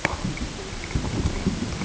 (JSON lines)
{"label": "ambient", "recorder": "HydroMoth"}